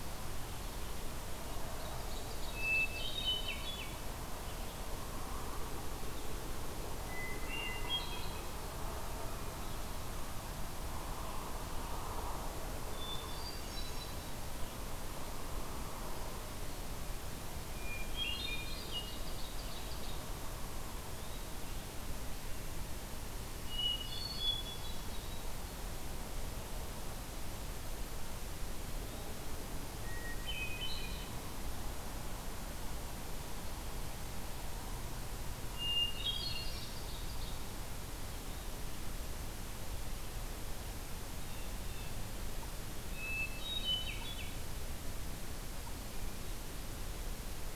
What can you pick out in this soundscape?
Ovenbird, Hermit Thrush, Eastern Wood-Pewee, Blue Jay